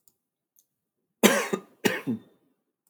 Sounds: Cough